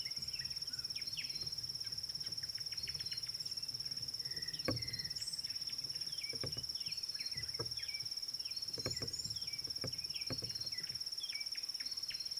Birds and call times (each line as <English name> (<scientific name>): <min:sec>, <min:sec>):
Red-cheeked Cordonbleu (Uraeginthus bengalus): 0:08.9
Red-backed Scrub-Robin (Cercotrichas leucophrys): 0:10.5